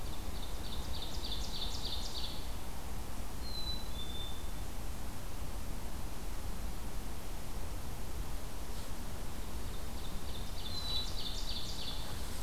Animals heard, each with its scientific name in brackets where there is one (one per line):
Ovenbird (Seiurus aurocapilla)
Black-capped Chickadee (Poecile atricapillus)